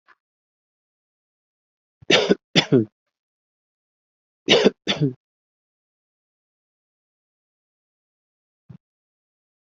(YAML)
expert_labels:
- quality: good
  cough_type: dry
  dyspnea: false
  wheezing: false
  stridor: false
  choking: false
  congestion: false
  nothing: true
  diagnosis: COVID-19
  severity: unknown
age: 28
gender: male
respiratory_condition: false
fever_muscle_pain: false
status: symptomatic